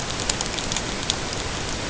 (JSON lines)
{"label": "ambient", "recorder": "HydroMoth"}